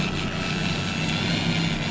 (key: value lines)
label: anthrophony, boat engine
recorder: SoundTrap 500